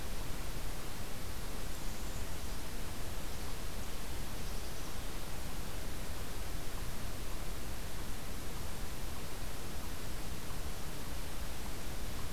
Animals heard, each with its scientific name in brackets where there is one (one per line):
Eastern Chipmunk (Tamias striatus)
Black-capped Chickadee (Poecile atricapillus)